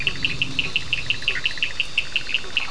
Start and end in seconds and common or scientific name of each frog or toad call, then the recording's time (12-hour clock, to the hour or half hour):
0.0	2.0	Bischoff's tree frog
0.0	2.7	blacksmith tree frog
0.0	2.7	two-colored oval frog
0.0	2.7	Cochran's lime tree frog
~11pm